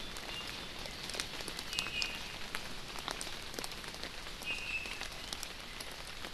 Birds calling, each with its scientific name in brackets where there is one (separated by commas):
Iiwi (Drepanis coccinea)